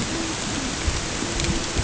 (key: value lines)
label: ambient
recorder: HydroMoth